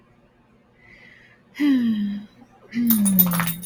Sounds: Sigh